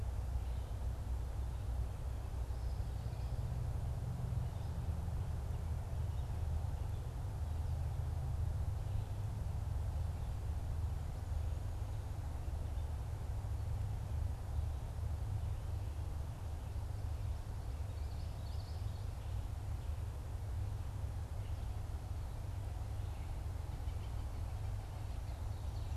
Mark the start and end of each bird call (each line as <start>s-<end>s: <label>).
0.0s-26.0s: Red-eyed Vireo (Vireo olivaceus)
17.6s-19.3s: Common Yellowthroat (Geothlypis trichas)
23.6s-25.1s: Cooper's Hawk (Accipiter cooperii)
25.1s-26.0s: Ovenbird (Seiurus aurocapilla)